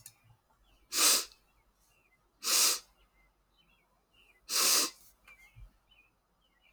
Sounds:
Sniff